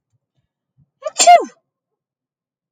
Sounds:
Sneeze